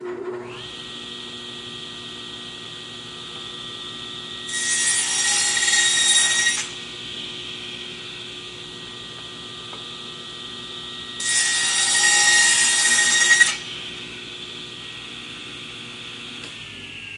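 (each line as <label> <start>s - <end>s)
A table saw running in the background. 0.0s - 4.5s
A table saw cutting wood. 4.5s - 6.7s
A table saw running in the background. 6.7s - 11.2s
A table saw cutting wood. 11.2s - 13.6s
A table saw running in the background. 13.6s - 17.2s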